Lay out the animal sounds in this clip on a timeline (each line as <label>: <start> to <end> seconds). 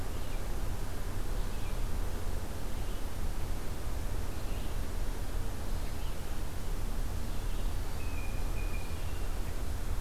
Red-eyed Vireo (Vireo olivaceus): 0.0 to 7.8 seconds
Blue Jay (Cyanocitta cristata): 7.9 to 9.3 seconds